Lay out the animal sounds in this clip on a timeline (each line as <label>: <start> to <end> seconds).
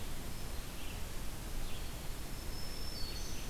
Red-eyed Vireo (Vireo olivaceus): 0.0 to 3.5 seconds
Black-throated Green Warbler (Setophaga virens): 1.9 to 3.5 seconds